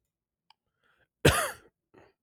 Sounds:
Cough